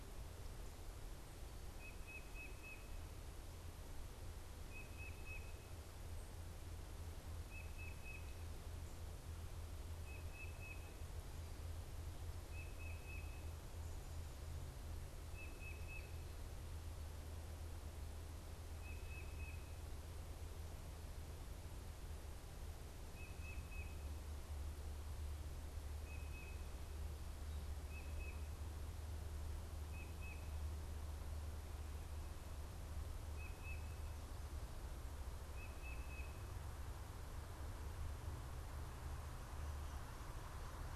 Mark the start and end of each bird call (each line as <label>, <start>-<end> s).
Tufted Titmouse (Baeolophus bicolor), 0.0-19.9 s
Tufted Titmouse (Baeolophus bicolor), 22.9-36.3 s